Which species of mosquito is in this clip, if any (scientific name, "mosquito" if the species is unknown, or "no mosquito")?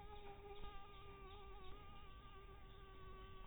Anopheles dirus